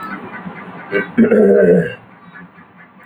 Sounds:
Throat clearing